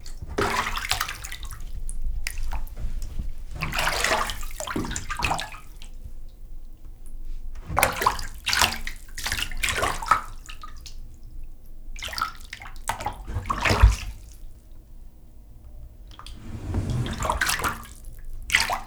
How many separate splashes are there?
seven